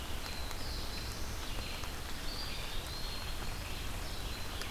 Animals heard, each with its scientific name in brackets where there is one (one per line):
Red-eyed Vireo (Vireo olivaceus)
Black-throated Blue Warbler (Setophaga caerulescens)
Eastern Wood-Pewee (Contopus virens)